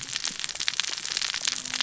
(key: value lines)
label: biophony, cascading saw
recorder: SoundTrap 600 or HydroMoth